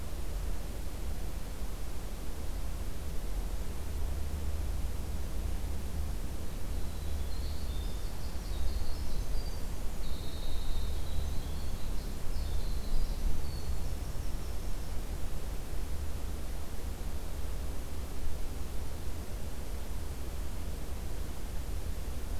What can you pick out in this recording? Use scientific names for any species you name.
Troglodytes hiemalis